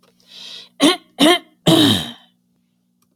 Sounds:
Throat clearing